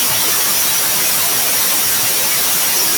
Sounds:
Sniff